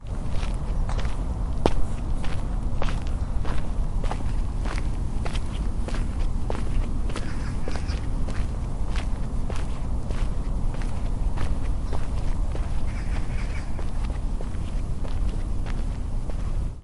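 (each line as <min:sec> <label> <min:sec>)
0:00.0 Soft, steady footsteps on a natural surface. 0:16.7
0:07.0 Birds chirping softly with clear calls in the background. 0:08.2
0:12.6 Birds chirp with light, high-pitched calls in the background. 0:14.0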